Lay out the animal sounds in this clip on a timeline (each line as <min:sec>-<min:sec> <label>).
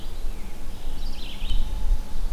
0:00.0-0:02.3 Red-eyed Vireo (Vireo olivaceus)